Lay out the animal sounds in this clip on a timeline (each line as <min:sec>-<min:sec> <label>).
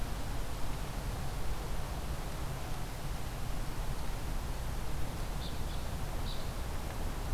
0:05.3-0:06.5 Evening Grosbeak (Coccothraustes vespertinus)